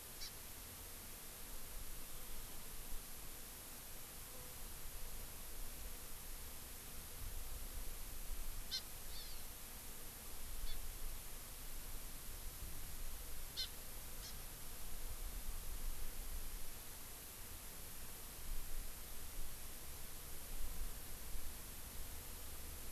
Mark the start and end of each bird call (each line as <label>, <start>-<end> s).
Hawaii Amakihi (Chlorodrepanis virens), 0.2-0.3 s
Hawaii Amakihi (Chlorodrepanis virens), 8.7-8.8 s
Hawaii Amakihi (Chlorodrepanis virens), 9.1-9.5 s
Hawaii Amakihi (Chlorodrepanis virens), 10.7-10.8 s
Hawaii Amakihi (Chlorodrepanis virens), 13.6-13.7 s
Hawaii Amakihi (Chlorodrepanis virens), 14.2-14.4 s